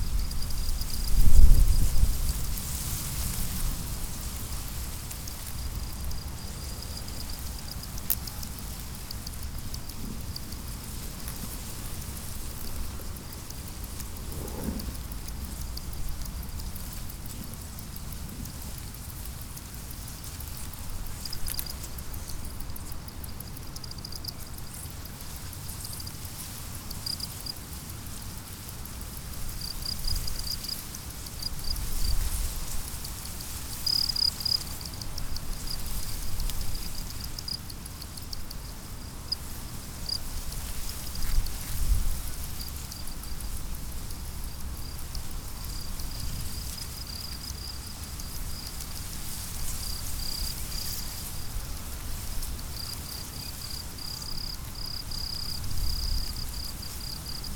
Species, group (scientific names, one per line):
Gryllus bimaculatus
Orthoptera